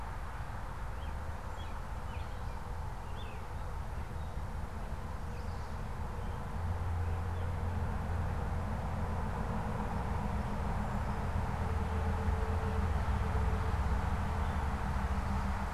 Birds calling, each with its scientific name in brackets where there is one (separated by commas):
American Robin (Turdus migratorius), Chestnut-sided Warbler (Setophaga pensylvanica)